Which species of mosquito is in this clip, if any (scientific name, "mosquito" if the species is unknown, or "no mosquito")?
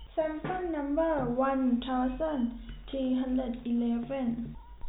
no mosquito